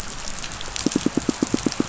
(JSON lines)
{"label": "biophony, pulse", "recorder": "SoundTrap 500"}